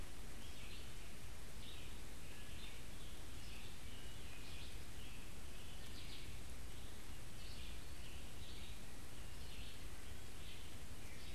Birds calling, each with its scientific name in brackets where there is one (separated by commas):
Wood Thrush (Hylocichla mustelina), Red-eyed Vireo (Vireo olivaceus), Scarlet Tanager (Piranga olivacea)